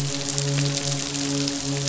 {"label": "biophony, midshipman", "recorder": "SoundTrap 500"}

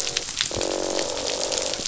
{"label": "biophony, croak", "recorder": "SoundTrap 500"}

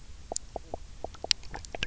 {"label": "biophony, knock croak", "recorder": "SoundTrap 300"}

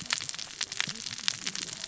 {"label": "biophony, cascading saw", "recorder": "SoundTrap 600 or HydroMoth"}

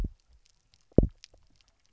{"label": "biophony, double pulse", "recorder": "SoundTrap 300"}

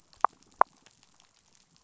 {"label": "biophony", "recorder": "SoundTrap 500"}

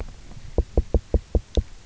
{"label": "biophony, knock", "recorder": "SoundTrap 300"}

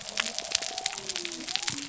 {"label": "biophony", "recorder": "SoundTrap 300"}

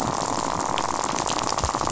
{"label": "biophony, rattle", "recorder": "SoundTrap 500"}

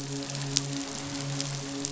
{"label": "biophony, midshipman", "recorder": "SoundTrap 500"}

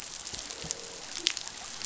{"label": "biophony", "recorder": "SoundTrap 500"}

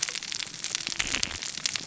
{"label": "biophony, cascading saw", "recorder": "SoundTrap 600 or HydroMoth"}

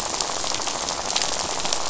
{"label": "biophony, rattle", "recorder": "SoundTrap 500"}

